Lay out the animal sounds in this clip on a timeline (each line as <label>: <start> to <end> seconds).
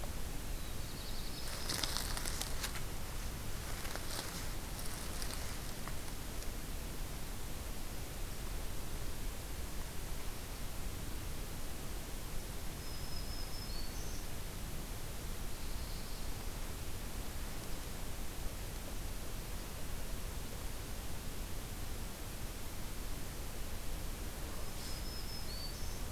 Black-throated Blue Warbler (Setophaga caerulescens): 0.5 to 1.7 seconds
Black-throated Green Warbler (Setophaga virens): 1.2 to 2.4 seconds
Black-throated Green Warbler (Setophaga virens): 12.7 to 14.4 seconds
Black-throated Blue Warbler (Setophaga caerulescens): 15.4 to 16.4 seconds
Black-throated Green Warbler (Setophaga virens): 24.3 to 26.1 seconds